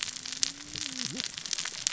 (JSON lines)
{"label": "biophony, cascading saw", "recorder": "SoundTrap 600 or HydroMoth"}